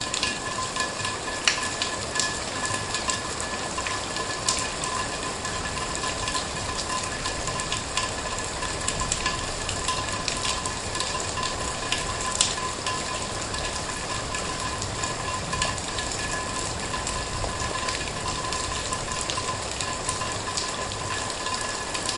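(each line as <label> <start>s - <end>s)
Heavy rain falling on a ceramic surface. 0.0s - 22.2s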